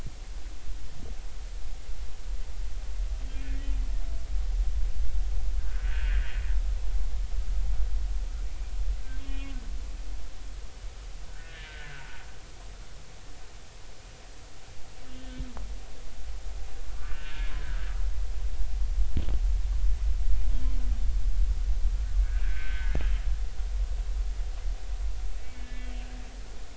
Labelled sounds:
5.7	6.2	humpback whale, 1.4 to 1.8 kHz
9.2	9.6	humpback whale, 2.4 to 3.3 kHz
11.3	12.2	humpback whale, 1.3 to 1.9 kHz
15.1	15.4	humpback whale, 3.0 to 3.2 kHz
17.0	17.9	humpback whale, 0.93 to 1.9 kHz
22.4	23.0	humpback whale, 1.4 to 1.8 kHz
25.4	25.9	humpback whale, 1.7 to 3.3 kHz

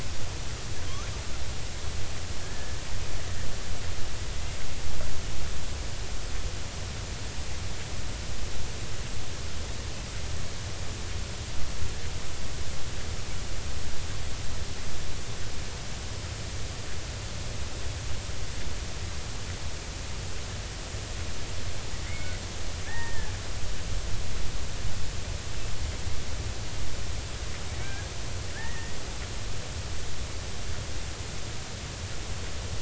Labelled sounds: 2.4	2.8	killer whale, Bigg's (transient), 1.6 to 1.8 kHz
22.1	22.3	killer whale, Bigg's (transient), 2.0 to 2.3 kHz
22.9	23.3	killer whale, Bigg's (transient), 0.80 to 1.9 kHz
27.8	29.0	killer whale, Bigg's (transient), 1.4 to 2.5 kHz

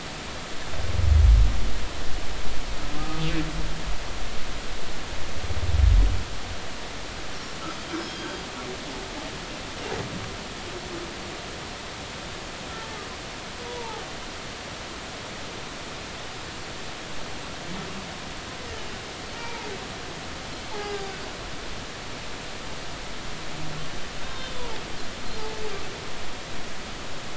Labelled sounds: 8.0	8.3	humpback whale, 3.2 to 3.4 kHz
13.6	14.0	humpback whale, 0.80 to 0.99 kHz
19.4	19.7	humpback whale, 0.83 to 0.99 kHz
20.7	21.1	humpback whale, 0.80 to 1.7 kHz
24.2	24.7	humpback whale, 3.3 to 3.7 kHz

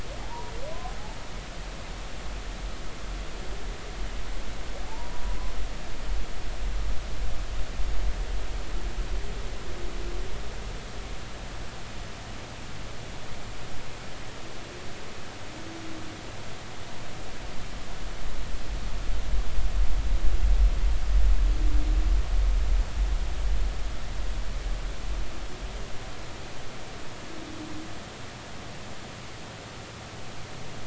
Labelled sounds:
0.2	0.5	humpback whale, 0.80 to 1.0 kHz
4.9	5.2	humpback whale, 0.83 to 1.0 kHz

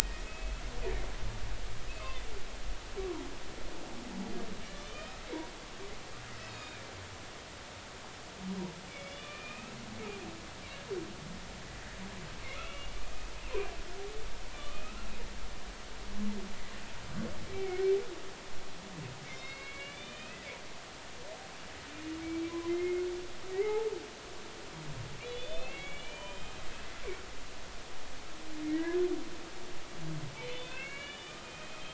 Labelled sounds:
0.0	0.6	humpback whale, 1.8 to 2.7 kHz
1.9	2.2	humpback whale, 2.5 to 2.7 kHz
4.7	5.5	humpback whale, 2.0 to 3.7 kHz
6.4	6.8	humpback whale, 2.2 to 6.9 kHz
8.9	9.8	humpback whale, 1.1 to 5.3 kHz
12.5	13.3	humpback whale, 2.3 to 3.6 kHz
14.5	15.0	humpback whale, 1.1 to 3.1 kHz
17.5	17.8	humpback whale, 2.1 to 2.4 kHz
19.2	20.4	humpback whale, 2.0 to 5.1 kHz
22.5	23.0	humpback whale, 0.96 to 2.2 kHz
23.5	23.9	humpback whale, 0.80 to 2.2 kHz
25.2	26.6	humpback whale, 2.0 to 6.8 kHz
28.7	29.0	humpback whale, 1.8 to 2.1 kHz
30.3	31.9	humpback whale, 1.2 to 3.6 kHz

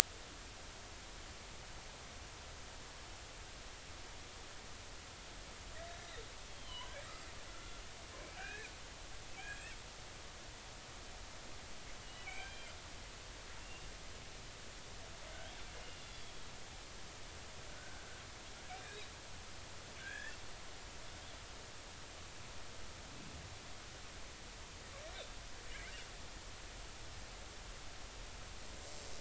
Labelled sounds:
6.5	6.9	killer whale, northern resident, G clan, 0.93 to 3.3 kHz
7.5	7.8	killer whale, northern resident, G clan, 1.3 to 1.5 kHz
8.4	8.7	killer whale, northern resident, G clan, 1.4 to 2.6 kHz
9.4	9.7	killer whale, northern resident, G clan, 2.2 to 2.8 kHz
12.0	12.7	killer whale, northern resident, G clan, 1.5 to 3.0 kHz
13.6	13.9	killer whale, northern resident, G clan, 2.7 to 2.8 kHz
15.9	16.5	killer whale, northern resident, G clan, 3.2 to 5.1 kHz
17.7	18.1	killer whale, northern resident, G clan, 1.4 to 1.6 kHz
20.0	20.4	killer whale, northern resident, G clan, 1.5 to 3.5 kHz

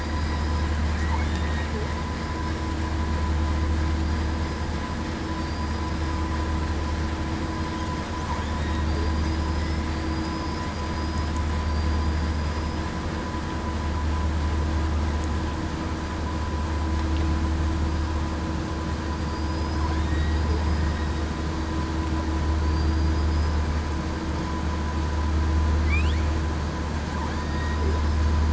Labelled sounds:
1.3	1.7	killer whale, southern resident, 1.8 to 1.9 kHz
5.4	5.8	killer whale, southern resident, 4.6 to 4.9 kHz
8.9	9.8	killer whale, southern resident, 4.8 to 8.0 kHz
10.8	11.2	killer whale, southern resident, 4.9 to 5.0 kHz
19.3	20.4	killer whale, southern resident, 1.8 to 5.2 kHz
22.7	23.3	killer whale, southern resident, 4.7 to 5.0 kHz
27.3	27.8	killer whale, southern resident, 1.6 to 1.9 kHz

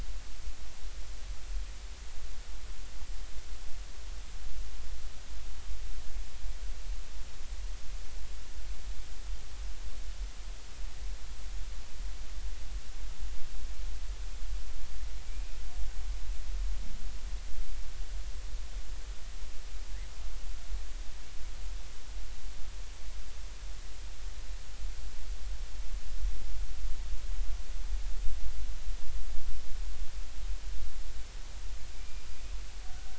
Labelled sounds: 15.3	15.6	killer whale, Bigg's (transient), 2.3 to 2.6 kHz
31.9	32.3	killer whale, Bigg's (transient), 2.3 to 2.5 kHz

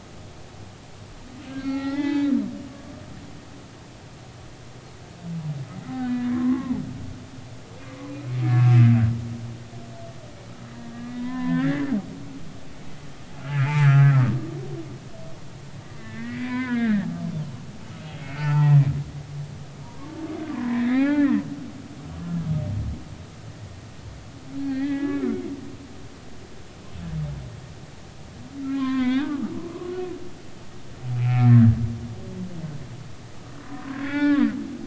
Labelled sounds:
1.6	3.3	humpback whale, 0.80 to 4.4 kHz
5.9	6.8	humpback whale, 0.83 to 3.9 kHz
8.4	8.8	humpback whale, 1.3 to 2.6 kHz
10.9	11.8	humpback whale, 0.93 to 3.5 kHz
13.5	14.3	humpback whale, 0.99 to 2.6 kHz
16.0	17.1	humpback whale, 0.93 to 5.0 kHz
17.6	18.8	humpback whale, 0.83 to 4.7 kHz
19.6	21.4	humpback whale, 0.80 to 4.2 kHz
24.6	25.2	humpback whale, 1.5 to 2.6 kHz
28.6	29.5	humpback whale, 0.96 to 3.8 kHz
31.2	31.8	humpback whale, 1.2 to 2.7 kHz
33.6	34.5	humpback whale, 0.80 to 5.3 kHz

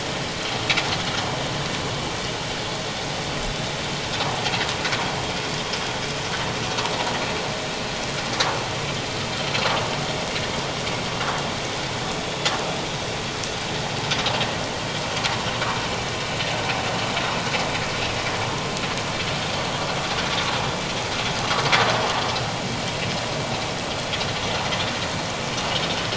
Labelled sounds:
9.6	9.8	vessel noise, 1.0 to 1.4 kHz

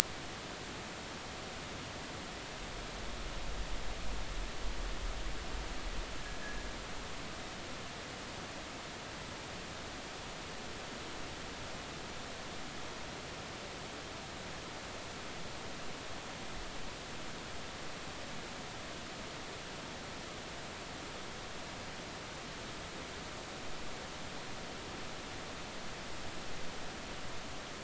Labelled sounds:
6.4	6.7	fishing gear, 1.6 to 1.9 kHz

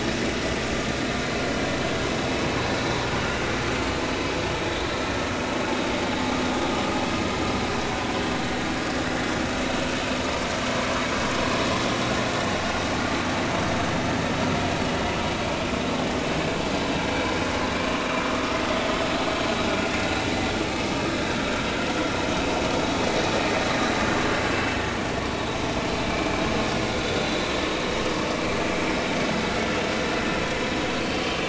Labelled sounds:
26.0	26.4	vessel noise, 2.3 to 2.5 kHz

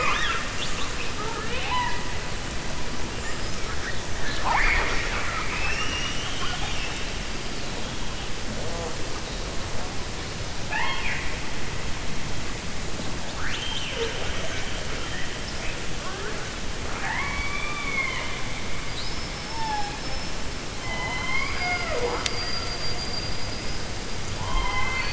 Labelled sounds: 4.1	7.0	killer whale, 0.41 to 6.3 kHz
10.6	11.4	killer whale, 0.78 to 3.3 kHz
16.8	18.4	killer whale, 0.76 to 3.6 kHz

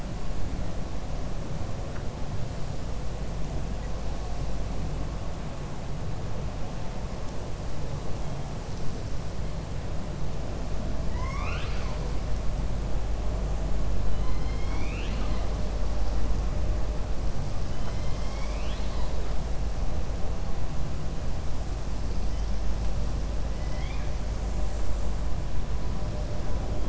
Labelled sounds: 11.0	12.0	killer whale, 0.95 to 6.5 kHz
14.1	15.5	killer whale, 0.70 to 4.5 kHz
23.5	24.1	killer whale, 1.7 to 5.7 kHz

